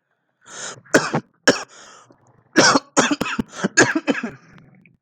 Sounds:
Cough